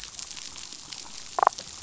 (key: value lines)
label: biophony, damselfish
recorder: SoundTrap 500